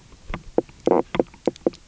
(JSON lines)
{"label": "biophony, knock croak", "recorder": "SoundTrap 300"}